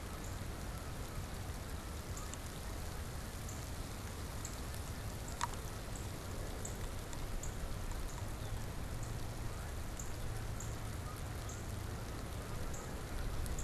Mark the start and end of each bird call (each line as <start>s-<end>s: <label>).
0.0s-3.0s: Canada Goose (Branta canadensis)
0.1s-13.6s: Northern Cardinal (Cardinalis cardinalis)
8.3s-8.8s: Red-winged Blackbird (Agelaius phoeniceus)
9.2s-13.6s: Canada Goose (Branta canadensis)